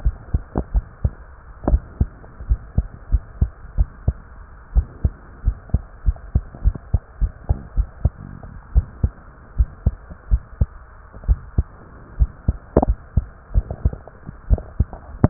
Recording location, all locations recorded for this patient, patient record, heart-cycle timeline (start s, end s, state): pulmonary valve (PV)
aortic valve (AV)+pulmonary valve (PV)+tricuspid valve (TV)+mitral valve (MV)
#Age: Child
#Sex: Male
#Height: 124.0 cm
#Weight: 29.6 kg
#Pregnancy status: False
#Murmur: Absent
#Murmur locations: nan
#Most audible location: nan
#Systolic murmur timing: nan
#Systolic murmur shape: nan
#Systolic murmur grading: nan
#Systolic murmur pitch: nan
#Systolic murmur quality: nan
#Diastolic murmur timing: nan
#Diastolic murmur shape: nan
#Diastolic murmur grading: nan
#Diastolic murmur pitch: nan
#Diastolic murmur quality: nan
#Outcome: Normal
#Campaign: 2015 screening campaign
0.00	2.19	unannotated
2.19	2.44	diastole
2.44	2.60	S1
2.60	2.73	systole
2.73	2.88	S2
2.88	3.06	diastole
3.06	3.22	S1
3.22	3.37	systole
3.37	3.52	S2
3.52	3.72	diastole
3.72	3.88	S1
3.88	4.03	systole
4.03	4.15	S2
4.15	4.72	diastole
4.72	4.86	S1
4.86	5.00	systole
5.00	5.15	S2
5.15	5.42	diastole
5.42	5.56	S1
5.56	5.69	systole
5.69	5.82	S2
5.82	6.00	diastole
6.00	6.16	S1
6.16	6.31	systole
6.31	6.44	S2
6.44	6.62	diastole
6.62	6.76	S1
6.76	6.89	systole
6.89	7.01	S2
7.01	7.19	diastole
7.19	7.32	S1
7.32	7.46	systole
7.46	7.60	S2
7.60	7.74	diastole
7.74	7.88	S1
7.88	8.01	systole
8.01	8.12	S2
8.12	8.71	diastole
8.71	8.86	S1
8.86	9.00	systole
9.00	9.14	S2
9.14	9.55	diastole
9.55	9.70	S1
9.70	9.83	systole
9.83	9.96	S2
9.96	10.27	diastole
10.27	10.42	S1
10.42	10.58	systole
10.58	10.70	S2
10.70	11.26	diastole
11.26	11.40	S1
11.40	11.54	systole
11.54	11.66	S2
11.66	12.14	diastole
12.14	12.30	S1
12.30	12.43	systole
12.43	12.58	S2
12.58	12.83	diastole
12.83	12.97	S1
12.97	13.11	systole
13.11	13.24	S2
13.24	13.51	diastole
13.51	13.66	S1
13.66	13.81	systole
13.81	13.94	S2
13.94	14.46	diastole
14.46	14.62	S1
14.62	14.78	systole
14.78	14.90	S2
14.90	15.22	diastole
15.22	15.30	S1